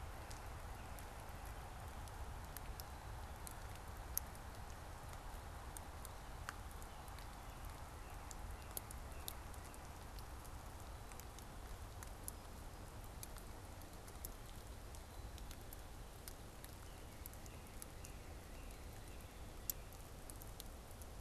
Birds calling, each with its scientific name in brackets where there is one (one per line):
Northern Cardinal (Cardinalis cardinalis)